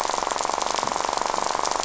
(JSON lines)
{"label": "biophony, rattle", "recorder": "SoundTrap 500"}